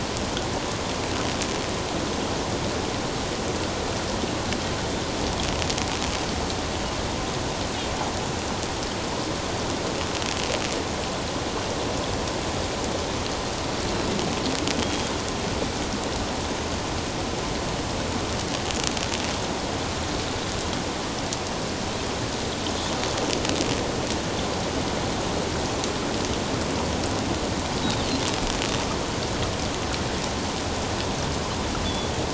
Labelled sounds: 14.8	15.1	Pacific white-sided dolphin, 3.2 to 3.3 kHz
31.8	32.1	Pacific white-sided dolphin, 3.3 to 3.5 kHz

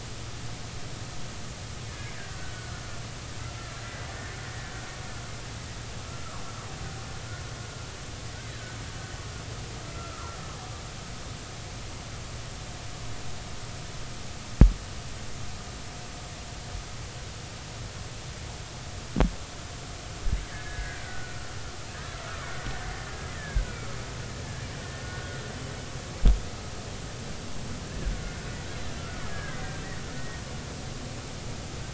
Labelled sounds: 1.9	2.8	killer whale, Bigg's (transient), 1.2 to 1.8 kHz
3.8	4.1	killer whale, Bigg's (transient), 1.95 to 2.02 kHz
4.5	4.9	killer whale, Bigg's (transient), 1.4 to 1.9 kHz
8.4	8.8	killer whale, Bigg's (transient), 1.4 to 2.1 kHz
9.9	10.4	killer whale, Bigg's (transient), 0.93 to 1.4 kHz
21.0	22.0	killer whale, Bigg's (transient), 1.3 to 2.0 kHz
22.4	23.6	killer whale, Bigg's (transient), 1.5 to 2.3 kHz
25.0	25.3	killer whale, Bigg's (transient), 1.4 to 1.6 kHz
29.0	29.6	killer whale, Bigg's (transient), 1.3 to 1.8 kHz
30.1	30.4	killer whale, Bigg's (transient), 1.8 to 1.9 kHz

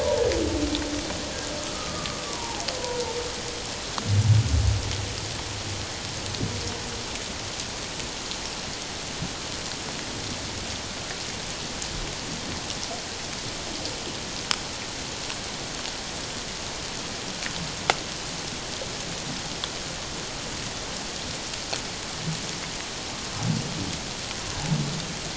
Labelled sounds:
1.7	2.6	humpback whale, 0.78 to 1.4 kHz

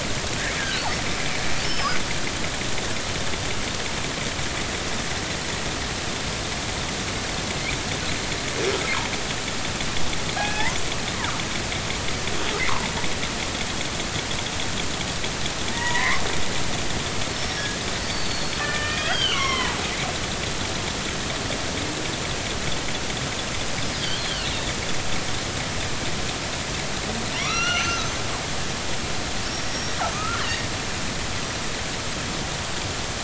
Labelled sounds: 0.6	0.9	killer whale, northern resident, G clan, 1.4 to 1.9 kHz
1.6	1.9	killer whale, northern resident, G clan, 5.2 to 5.4 kHz
10.4	10.7	killer whale, northern resident, G clan, 1.5 to 2.6 kHz
15.7	16.2	killer whale, northern resident, G clan, 0.90 to 2.3 kHz
18.0	19.8	killer whale, northern resident, G clan, 0.83 to 5.0 kHz
24.0	24.5	killer whale, northern resident, G clan, 2.6 to 4.7 kHz
27.4	28.1	killer whale, northern resident, G clan, 1.0 to 6.2 kHz
29.4	30.5	killer whale, northern resident, G clan, 1.1 to 5.7 kHz

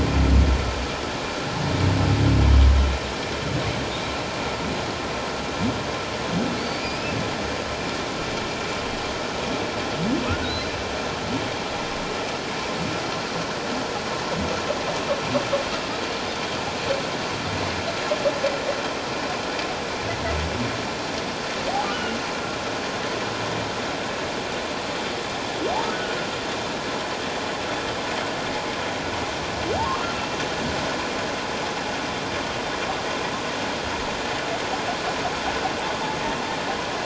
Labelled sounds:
6.8	7.2	humpback whale, 2.3 to 2.7 kHz
10.4	10.7	humpback whale, 3.7 to 4.2 kHz
21.9	22.2	humpback whale, 1.4 to 3.0 kHz
29.8	30.3	humpback whale, 0.78 to 1.4 kHz

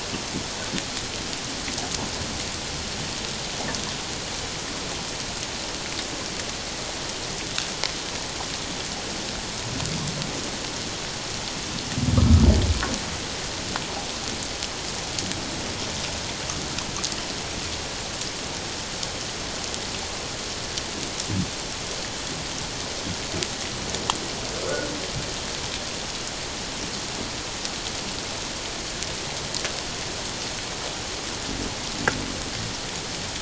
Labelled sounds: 12.2	12.4	humpback whale, 1.0 to 1.4 kHz
24.6	24.9	humpback whale, 1.2 to 1.5 kHz

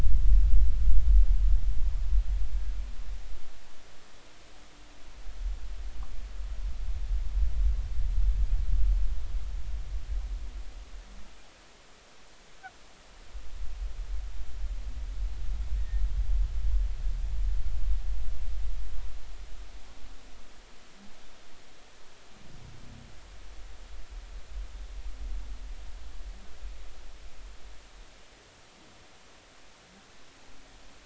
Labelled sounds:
15.8	16.0	humpback whale, 1.8 to 1.9 kHz

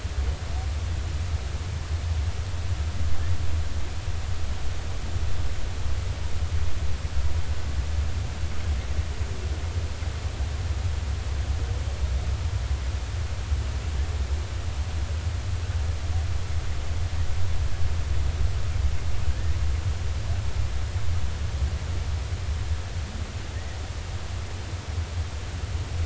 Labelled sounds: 19.3	19.5	humpback whale, 1.5 to 1.9 kHz

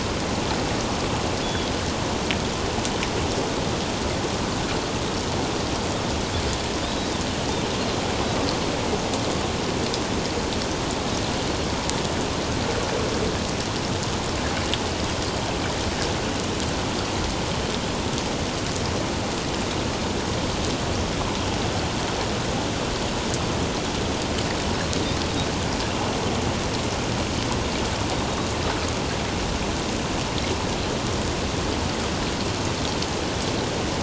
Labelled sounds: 1.4	1.7	Pacific white-sided dolphin, 3.2 to 3.5 kHz
6.9	7.1	Pacific white-sided dolphin, 3.8 to 3.9 kHz

